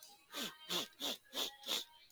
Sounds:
Sniff